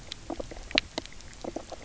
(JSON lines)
{"label": "biophony, knock croak", "recorder": "SoundTrap 300"}